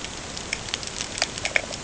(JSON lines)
{"label": "ambient", "recorder": "HydroMoth"}